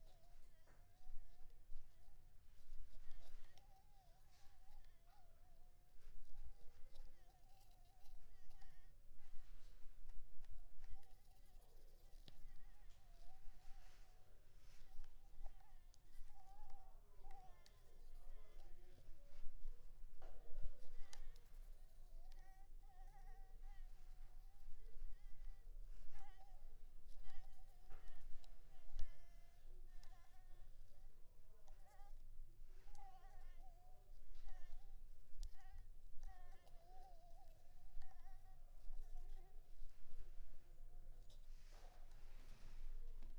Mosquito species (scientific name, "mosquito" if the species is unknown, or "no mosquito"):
Anopheles maculipalpis